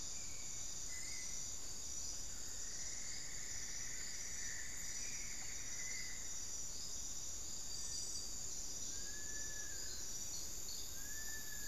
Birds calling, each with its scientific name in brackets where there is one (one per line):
Long-billed Woodcreeper (Nasica longirostris)
Cinnamon-throated Woodcreeper (Dendrexetastes rufigula)
Cinereous Tinamou (Crypturellus cinereus)